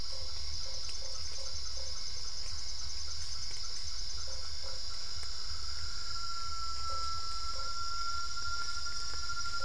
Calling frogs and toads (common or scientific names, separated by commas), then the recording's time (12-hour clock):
Usina tree frog
8:00pm